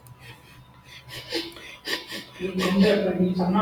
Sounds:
Sniff